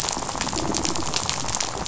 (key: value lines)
label: biophony, rattle
recorder: SoundTrap 500